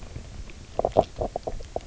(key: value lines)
label: biophony, knock croak
recorder: SoundTrap 300